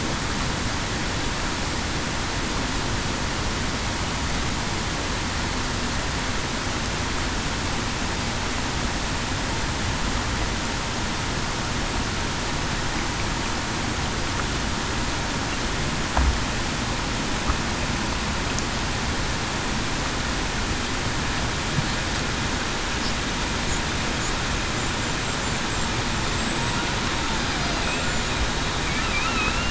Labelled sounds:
29.2	29.6	killer whale, Bigg's (transient), 2.5 to 2.9 kHz

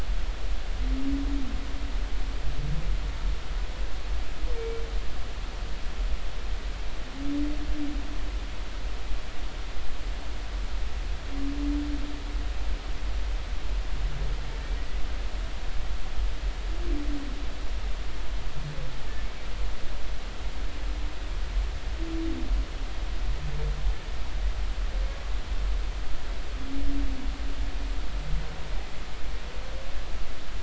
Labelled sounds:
4.6	4.8	humpback whale, 2.2 to 2.4 kHz

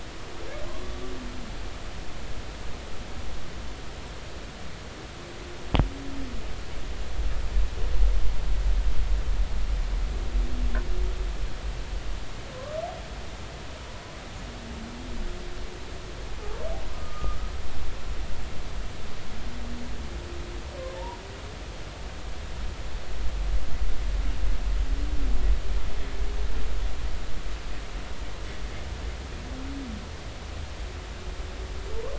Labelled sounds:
12.5	12.8	humpback whale, 0.99 to 1.3 kHz
16.9	17.4	humpback whale, 1.2 to 1.3 kHz

